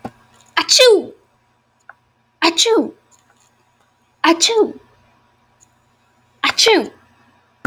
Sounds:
Sneeze